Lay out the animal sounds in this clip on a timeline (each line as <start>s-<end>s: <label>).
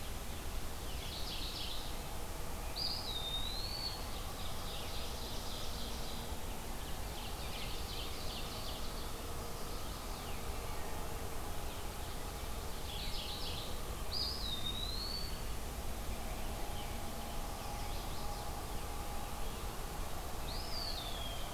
0.8s-1.9s: Mourning Warbler (Geothlypis philadelphia)
2.7s-4.1s: Eastern Wood-Pewee (Contopus virens)
4.0s-6.3s: Ovenbird (Seiurus aurocapilla)
6.8s-9.0s: Ovenbird (Seiurus aurocapilla)
9.2s-10.5s: Chestnut-sided Warbler (Setophaga pensylvanica)
12.6s-13.7s: Mourning Warbler (Geothlypis philadelphia)
13.9s-15.5s: Eastern Wood-Pewee (Contopus virens)
17.3s-18.6s: Chestnut-sided Warbler (Setophaga pensylvanica)
20.2s-21.5s: Eastern Wood-Pewee (Contopus virens)